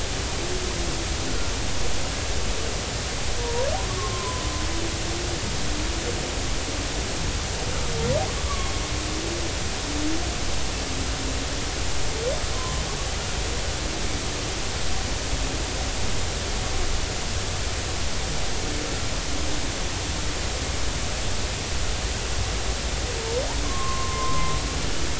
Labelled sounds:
3.4	4.4	humpback whale, 0.90 to 1.2 kHz
8.4	8.7	humpback whale, 1.0 to 1.2 kHz
12.5	12.8	humpback whale, 0.96 to 1.1 kHz
23.6	24.5	humpback whale, 0.99 to 1.1 kHz

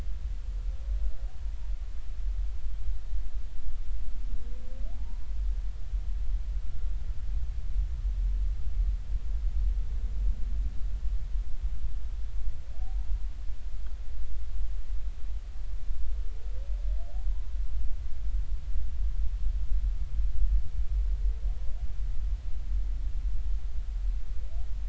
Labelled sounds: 4.9	5.2	humpback whale, 0.80 to 1.0 kHz

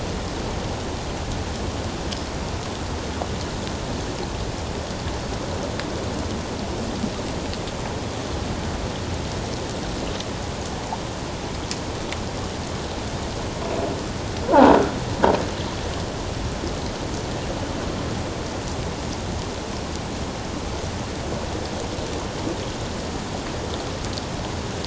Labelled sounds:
14.5	14.8	croaking sound likely from a nearby submerged object, 0.78 to 1.1 kHz

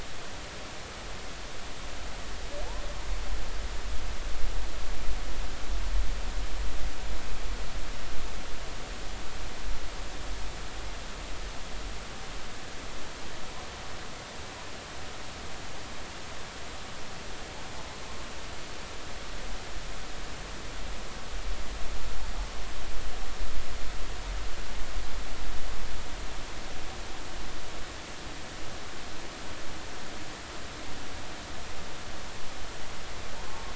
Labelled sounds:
33.4	33.7	humpback whale, 1.0 to 1.1 kHz

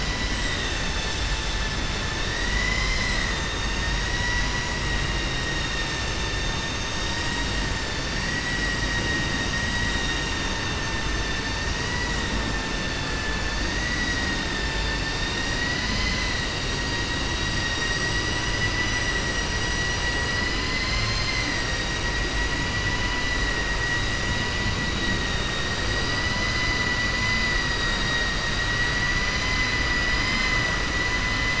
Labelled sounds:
8.8	10.4	vessel noise, 0.97 to 4.8 kHz
27.5	28.5	vessel noise, 0.94 to 5.7 kHz
29.3	29.8	vessel noise, 1.6 to 5.0 kHz

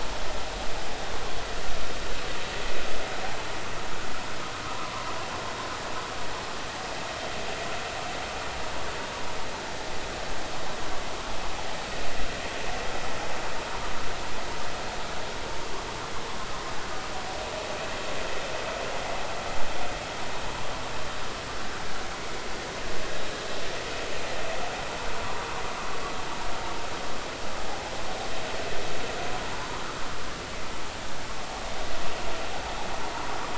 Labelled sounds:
4.6	5.1	vessel noise, 0.93 to 1.3 kHz
22.1	22.4	vessel noise, 2.1 to 2.3 kHz
29.6	29.8	vessel noise, 0.83 to 1.1 kHz

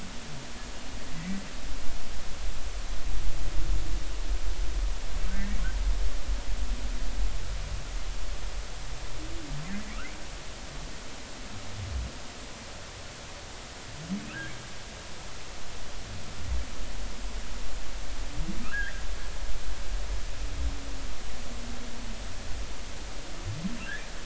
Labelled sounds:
18.6	19.0	humpback whale, 1.2 to 2.1 kHz

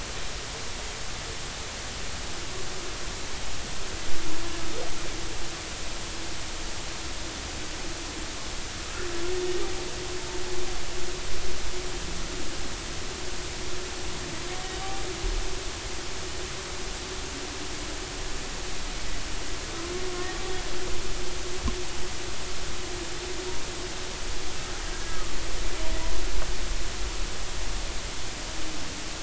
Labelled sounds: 20.1	20.4	humpback whale, 1.0 to 1.2 kHz
25.1	25.3	humpback whale, 1.1 to 1.3 kHz

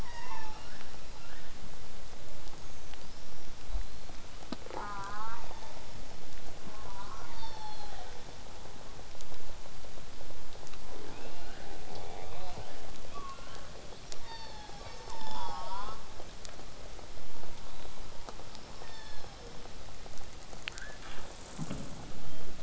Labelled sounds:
0.5	1.5	killer whale, southern resident, L pod, call S19, 0.58 to 5.4 kHz
2.5	4.1	killer whale, southern resident, whistle, 3.5 to 6.7 kHz
4.6	5.4	killer whale, southern resident, J pod, call S04, 0.22 to 2.3 kHz
5.5	5.8	killer whale, southern resident, 0.36 to 6.6 kHz
6.6	7.3	killer whale, southern resident, J pod, call S04, 0.13 to 1.7 kHz
7.0	8.2	killer whale, southern resident, call S36, 0.58 to 6.0 kHz
11.1	12.9	killer whale, southern resident, L pod, call S19, 1.1 to 5.2 kHz
13.1	13.9	killer whale, southern resident, 0.85 to 4.0 kHz
13.9	15.1	killer whale, southern resident, call S36, 0.40 to 5.8 kHz
14.9	15.5	killer whale, southern resident, 0.63 to 7.6 kHz
15.4	16.0	killer whale, southern resident, J pod, call S04, 0.63 to 5.5 kHz
18.5	19.7	killer whale, southern resident, call S36, 0.45 to 8.0 kHz
19.9	22.5	killer whale, southern resident, 0.40 to 8.0 kHz

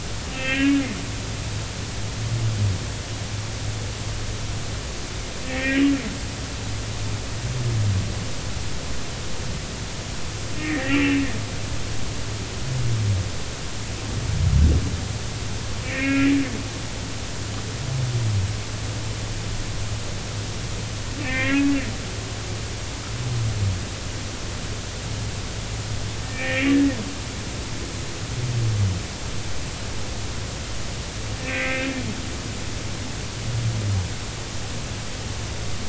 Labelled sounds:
0.3	0.8	humpback whale, 1.5 to 2.8 kHz
5.4	5.8	humpback whale, 1.8 to 2.8 kHz
10.6	11.2	humpback whale, 1.6 to 2.8 kHz
15.8	16.3	humpback whale, 1.6 to 2.8 kHz
21.2	21.7	humpback whale, 1.5 to 3.4 kHz
26.2	26.7	humpback whale, 1.8 to 2.6 kHz
31.4	31.9	humpback whale, 1.5 to 2.7 kHz

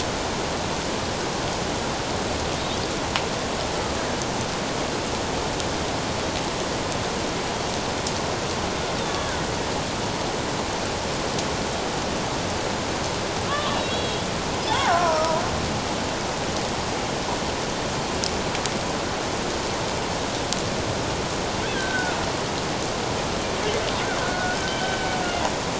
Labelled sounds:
9.0	9.4	killer whale, Bigg's (transient), 1.1 to 3.8 kHz
13.5	14.3	killer whale, Bigg's (transient), 1.0 to 4.0 kHz
14.7	15.4	killer whale, Bigg's (transient), 0.78 to 1.7 kHz
21.7	22.2	killer whale, Bigg's (transient), 1.3 to 3.9 kHz
24.2	25.1	killer whale, Bigg's (transient), 1.4 to 3.2 kHz

